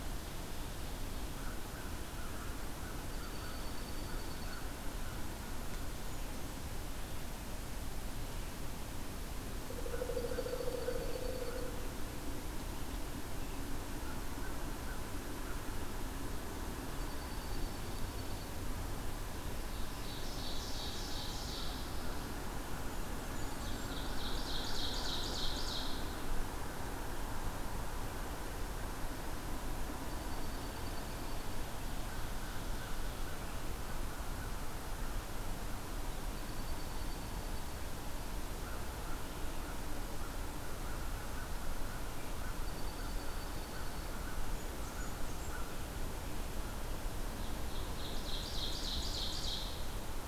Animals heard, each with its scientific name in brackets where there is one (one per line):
Dark-eyed Junco (Junco hyemalis)
Ovenbird (Seiurus aurocapilla)
Pileated Woodpecker (Dryocopus pileatus)
Blackburnian Warbler (Setophaga fusca)
American Crow (Corvus brachyrhynchos)